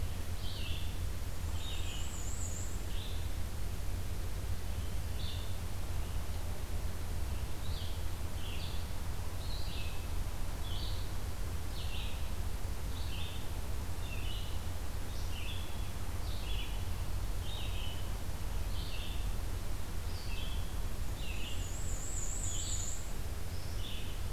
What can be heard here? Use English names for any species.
Red-eyed Vireo, Black-and-white Warbler